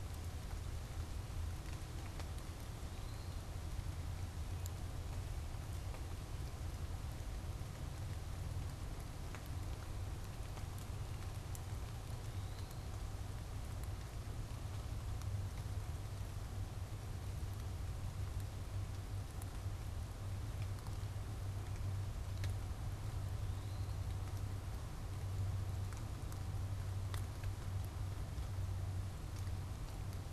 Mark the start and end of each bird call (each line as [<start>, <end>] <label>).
[2.45, 3.55] Eastern Wood-Pewee (Contopus virens)
[11.95, 13.05] Eastern Wood-Pewee (Contopus virens)
[23.25, 24.25] Eastern Wood-Pewee (Contopus virens)